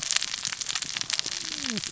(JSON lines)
{"label": "biophony, cascading saw", "recorder": "SoundTrap 600 or HydroMoth"}